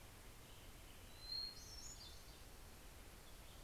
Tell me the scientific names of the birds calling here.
Piranga ludoviciana, Catharus guttatus